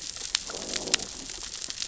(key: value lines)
label: biophony, growl
recorder: SoundTrap 600 or HydroMoth